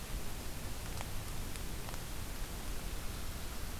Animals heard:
forest ambience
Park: Marsh-Billings-Rockefeller National Historical Park